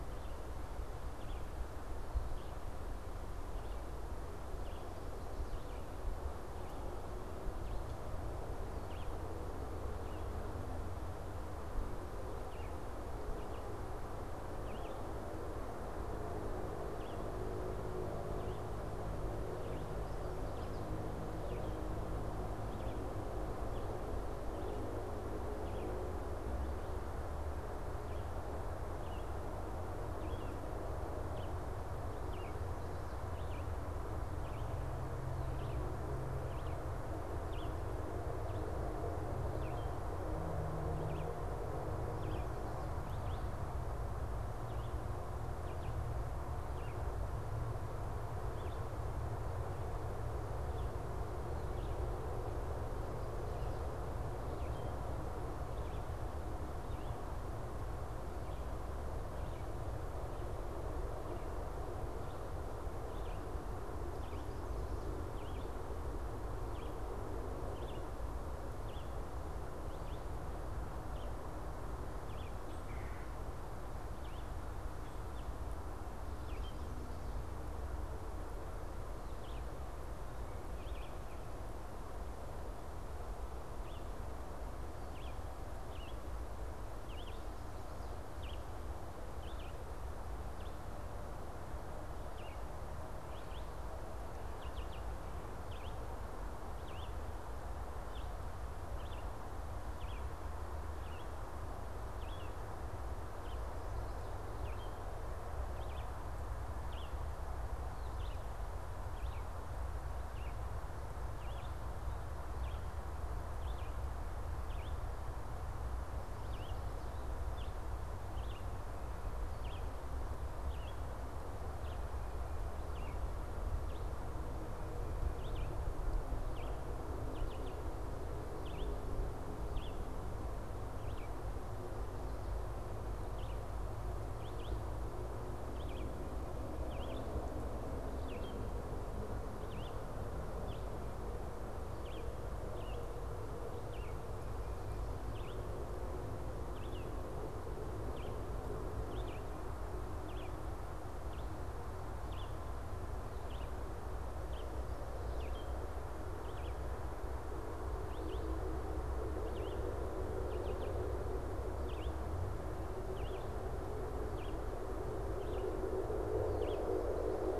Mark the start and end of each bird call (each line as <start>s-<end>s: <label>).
0.0s-49.0s: Red-eyed Vireo (Vireo olivaceus)
50.6s-108.4s: Red-eyed Vireo (Vireo olivaceus)
72.7s-73.5s: Red-bellied Woodpecker (Melanerpes carolinus)
109.0s-167.0s: Red-eyed Vireo (Vireo olivaceus)